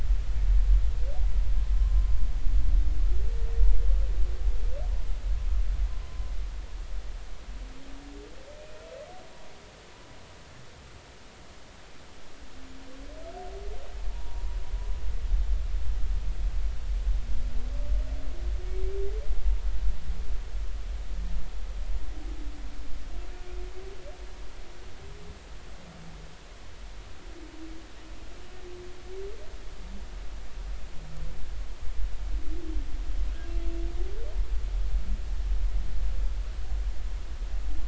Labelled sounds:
8.6	8.8	humpback whale, 2.4 to 2.5 kHz
14.1	14.6	humpback whale, 0.90 to 1.0 kHz

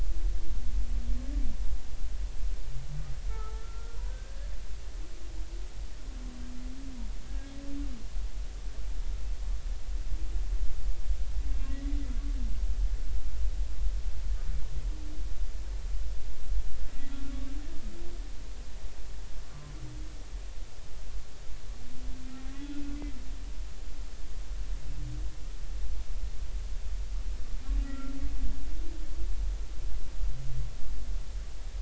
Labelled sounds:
3.3	4.5	humpback whale, 1.2 to 1.8 kHz
7.3	7.5	humpback whale, 1.6 to 1.7 kHz
11.5	11.8	humpback whale, 2.6 to 2.8 kHz
17.1	17.4	humpback whale, 1.3 to 1.4 kHz
22.6	23.0	humpback whale, 1.4 to 1.5 kHz
27.8	28.1	humpback whale, 1.3 to 1.4 kHz

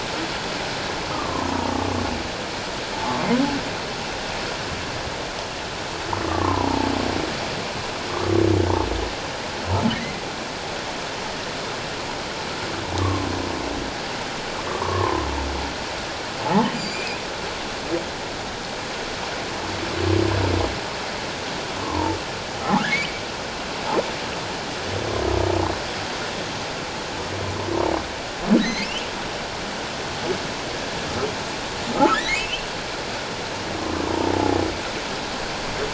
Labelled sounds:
1.1	1.7	humpback whale, 0.88 to 1.3 kHz
2.9	3.2	humpback whale, 0.81 to 0.94 kHz
6.3	6.8	humpback whale, 0.88 to 1.3 kHz
9.9	10.2	humpback whale, 1.8 to 2.1 kHz
13.0	13.3	humpback whale, 1.0 to 1.2 kHz
14.7	15.2	humpback whale, 0.88 to 1.2 kHz
16.7	17.1	humpback whale, 4.6 to 7.3 kHz
21.8	22.2	humpback whale, 0.84 to 1.1 kHz
22.6	23.2	humpback whale, 0.78 to 2.6 kHz
28.6	29.1	humpback whale, 1.7 to 4.3 kHz
31.9	32.7	humpback whale, 1.2 to 3.0 kHz

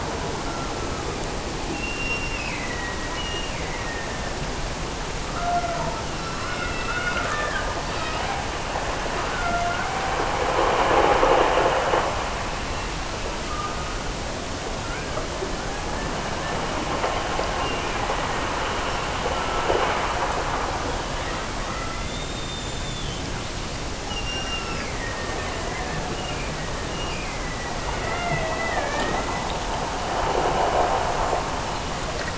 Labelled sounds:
1.8	4.5	killer whale, Bigg's (transient), Gulf of Alaska transient, 1.6 to 5.5 kHz
14.6	16.2	killer whale, Bigg's (transient), Gulf of Alaska transient, 0.39 to 2.9 kHz
17.6	18.6	killer whale, Bigg's (transient), Gulf of Alaska transient, 1.7 to 2.9 kHz
24.1	25.8	killer whale, Bigg's (transient), Gulf of Alaska transient, 1.6 to 5.7 kHz
26.1	27.9	killer whale, Bigg's (transient), Gulf of Alaska transient, 1.6 to 3.0 kHz

